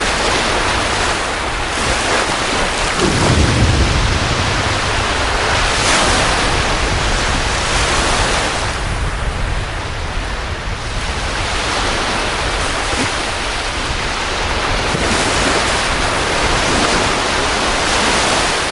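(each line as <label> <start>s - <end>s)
Waves crash against sand and rocks. 0.0s - 8.7s
Very soft waves on the sea. 8.6s - 11.1s
Waves crash against sand and rocks. 11.1s - 18.7s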